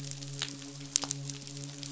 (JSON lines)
{"label": "biophony, midshipman", "recorder": "SoundTrap 500"}